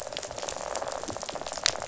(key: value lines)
label: biophony, rattle
recorder: SoundTrap 500